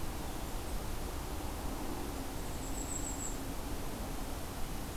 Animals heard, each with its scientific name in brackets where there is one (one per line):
Golden-crowned Kinglet (Regulus satrapa)